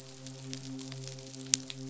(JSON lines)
{"label": "biophony, midshipman", "recorder": "SoundTrap 500"}